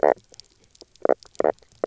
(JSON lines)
{"label": "biophony, knock croak", "recorder": "SoundTrap 300"}